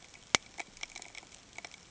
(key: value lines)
label: ambient
recorder: HydroMoth